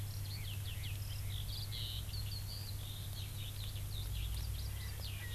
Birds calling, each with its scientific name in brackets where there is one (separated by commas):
Erckel's Francolin (Pternistis erckelii), Eurasian Skylark (Alauda arvensis), Red-billed Leiothrix (Leiothrix lutea)